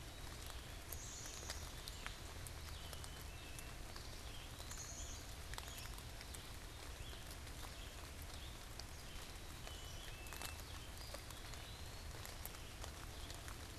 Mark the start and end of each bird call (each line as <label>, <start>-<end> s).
Red-eyed Vireo (Vireo olivaceus), 0.0-13.8 s
Black-capped Chickadee (Poecile atricapillus), 0.6-1.7 s
Black-capped Chickadee (Poecile atricapillus), 2.6-3.9 s
Eastern Wood-Pewee (Contopus virens), 3.6-5.2 s
Black-capped Chickadee (Poecile atricapillus), 4.6-5.3 s
Black-capped Chickadee (Poecile atricapillus), 9.4-10.7 s
Eastern Wood-Pewee (Contopus virens), 10.7-12.4 s